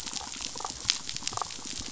{"label": "biophony, damselfish", "recorder": "SoundTrap 500"}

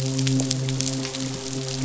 {"label": "biophony, midshipman", "recorder": "SoundTrap 500"}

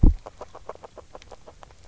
{"label": "biophony, grazing", "recorder": "SoundTrap 300"}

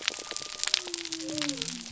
{"label": "biophony", "recorder": "SoundTrap 300"}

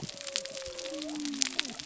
{"label": "biophony", "recorder": "SoundTrap 300"}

